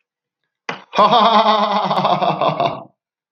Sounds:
Laughter